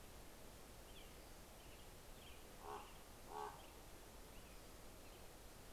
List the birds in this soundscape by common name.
American Robin, Common Raven